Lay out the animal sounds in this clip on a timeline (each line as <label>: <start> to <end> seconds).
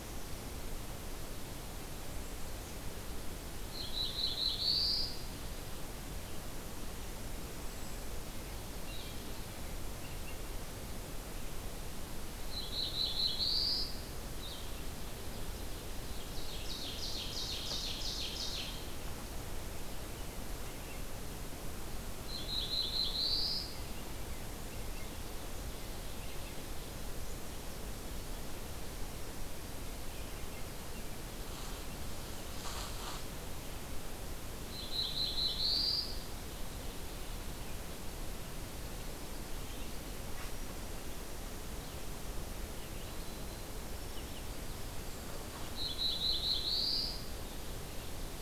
Black-throated Blue Warbler (Setophaga caerulescens): 3.7 to 5.3 seconds
Black-throated Blue Warbler (Setophaga caerulescens): 12.3 to 14.0 seconds
Ovenbird (Seiurus aurocapilla): 16.0 to 19.2 seconds
Black-throated Blue Warbler (Setophaga caerulescens): 22.1 to 23.8 seconds
Black-throated Blue Warbler (Setophaga caerulescens): 34.6 to 36.3 seconds
Ovenbird (Seiurus aurocapilla): 36.1 to 37.7 seconds
White-throated Sparrow (Zonotrichia albicollis): 42.9 to 46.0 seconds
Black-throated Blue Warbler (Setophaga caerulescens): 45.6 to 47.3 seconds